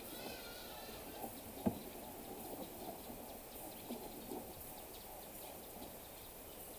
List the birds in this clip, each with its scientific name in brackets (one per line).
Hartlaub's Turaco (Tauraco hartlaubi)